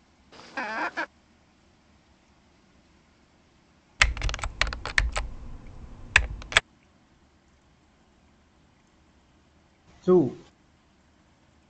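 A soft background noise persists. At 0.3 seconds, you can hear a chicken. Then at 4.0 seconds, there is typing. Later, at 10.1 seconds, a voice says "two."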